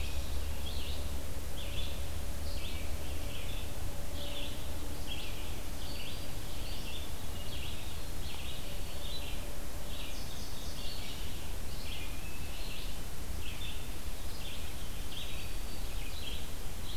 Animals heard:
Black-throated Green Warbler (Setophaga virens)
Indigo Bunting (Passerina cyanea)
Red-eyed Vireo (Vireo olivaceus)
Hermit Thrush (Catharus guttatus)

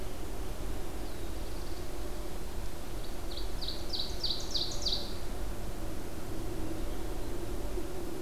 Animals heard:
Ovenbird (Seiurus aurocapilla)
Black-throated Blue Warbler (Setophaga caerulescens)

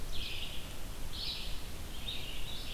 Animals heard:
Red-eyed Vireo (Vireo olivaceus)

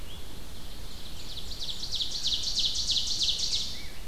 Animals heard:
Ovenbird (Seiurus aurocapilla)

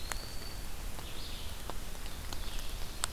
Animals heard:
Red-eyed Vireo (Vireo olivaceus)
Eastern Wood-Pewee (Contopus virens)

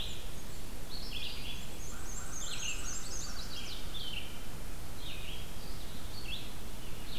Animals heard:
Blackburnian Warbler (Setophaga fusca)
Black-and-white Warbler (Mniotilta varia)
Chestnut-sided Warbler (Setophaga pensylvanica)
American Crow (Corvus brachyrhynchos)
Red-eyed Vireo (Vireo olivaceus)

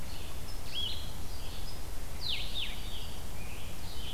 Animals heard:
Blue-headed Vireo (Vireo solitarius)

